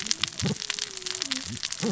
{"label": "biophony, cascading saw", "recorder": "SoundTrap 600 or HydroMoth"}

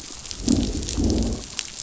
{"label": "biophony, growl", "recorder": "SoundTrap 500"}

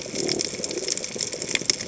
{"label": "biophony", "recorder": "HydroMoth"}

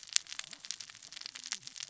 {"label": "biophony, cascading saw", "recorder": "SoundTrap 600 or HydroMoth"}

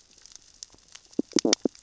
{"label": "biophony, stridulation", "recorder": "SoundTrap 600 or HydroMoth"}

